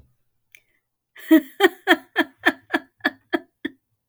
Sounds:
Laughter